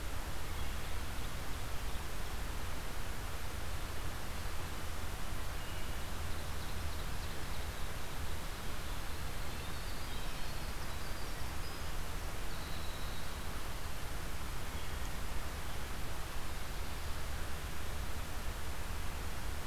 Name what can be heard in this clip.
Wood Thrush, Ovenbird, Winter Wren